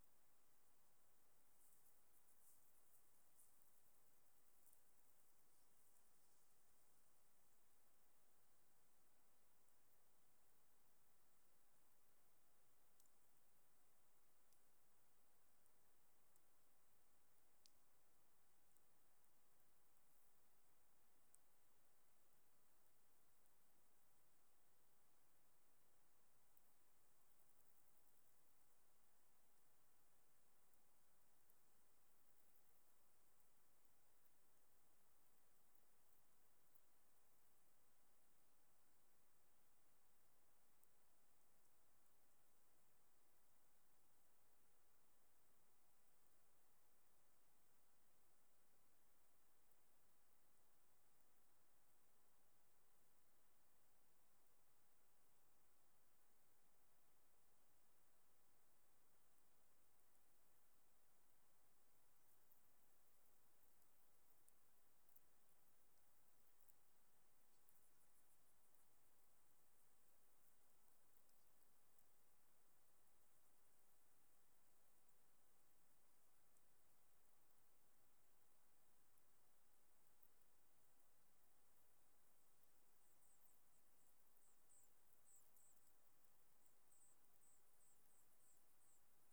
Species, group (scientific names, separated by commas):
Synephippius obvius, Orthoptera